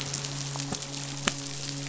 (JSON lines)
{"label": "biophony, midshipman", "recorder": "SoundTrap 500"}